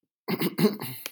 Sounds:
Throat clearing